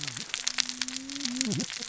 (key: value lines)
label: biophony, cascading saw
recorder: SoundTrap 600 or HydroMoth